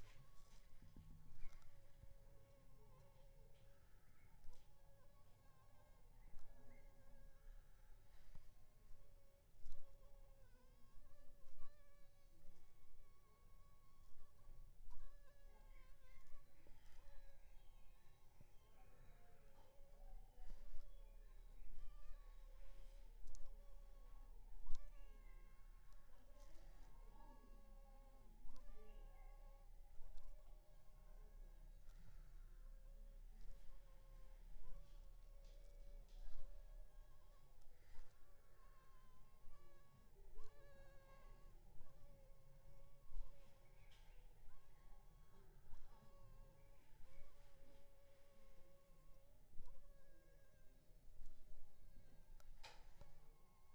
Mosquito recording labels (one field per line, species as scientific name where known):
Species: Anopheles funestus s.s.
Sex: female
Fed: unfed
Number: one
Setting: cup